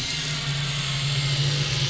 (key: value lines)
label: anthrophony, boat engine
recorder: SoundTrap 500